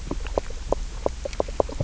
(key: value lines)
label: biophony, knock croak
recorder: SoundTrap 300